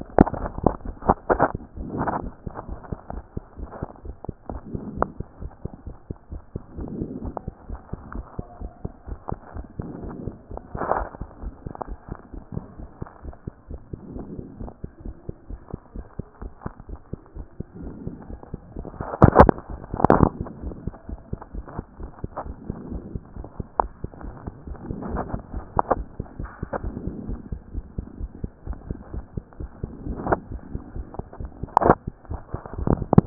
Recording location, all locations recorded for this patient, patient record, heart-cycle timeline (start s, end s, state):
mitral valve (MV)
aortic valve (AV)+pulmonary valve (PV)+tricuspid valve (TV)+mitral valve (MV)
#Age: Child
#Sex: Male
#Height: 131.0 cm
#Weight: 26.5 kg
#Pregnancy status: False
#Murmur: Absent
#Murmur locations: nan
#Most audible location: nan
#Systolic murmur timing: nan
#Systolic murmur shape: nan
#Systolic murmur grading: nan
#Systolic murmur pitch: nan
#Systolic murmur quality: nan
#Diastolic murmur timing: nan
#Diastolic murmur shape: nan
#Diastolic murmur grading: nan
#Diastolic murmur pitch: nan
#Diastolic murmur quality: nan
#Outcome: Normal
#Campaign: 2014 screening campaign
0.00	11.42	unannotated
11.42	11.54	S1
11.54	11.64	systole
11.64	11.74	S2
11.74	11.88	diastole
11.88	11.98	S1
11.98	12.10	systole
12.10	12.18	S2
12.18	12.34	diastole
12.34	12.42	S1
12.42	12.54	systole
12.54	12.64	S2
12.64	12.80	diastole
12.80	12.88	S1
12.88	13.02	systole
13.02	13.08	S2
13.08	13.24	diastole
13.24	13.34	S1
13.34	13.46	systole
13.46	13.54	S2
13.54	13.70	diastole
13.70	13.80	S1
13.80	13.92	systole
13.92	14.00	S2
14.00	14.14	diastole
14.14	14.26	S1
14.26	14.34	systole
14.34	14.44	S2
14.44	14.60	diastole
14.60	14.70	S1
14.70	14.82	systole
14.82	14.90	S2
14.90	15.04	diastole
15.04	15.14	S1
15.14	15.26	systole
15.26	15.34	S2
15.34	15.50	diastole
15.50	15.60	S1
15.60	15.72	systole
15.72	15.80	S2
15.80	15.96	diastole
15.96	16.06	S1
16.06	16.18	systole
16.18	16.26	S2
16.26	16.42	diastole
16.42	16.52	S1
16.52	16.64	systole
16.64	16.74	S2
16.74	16.90	diastole
16.90	16.98	S1
16.98	17.12	systole
17.12	17.20	S2
17.20	17.36	diastole
17.36	17.46	S1
17.46	17.58	systole
17.58	17.66	S2
17.66	17.82	diastole
17.82	17.92	S1
17.92	18.04	systole
18.04	18.14	S2
18.14	18.30	diastole
18.30	18.40	S1
18.40	18.52	systole
18.52	18.60	S2
18.60	33.26	unannotated